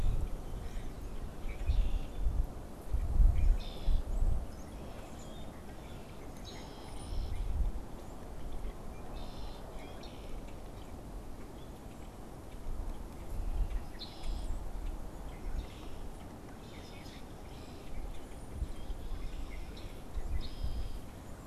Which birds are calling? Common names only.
Common Grackle, Red-winged Blackbird, Brown-headed Cowbird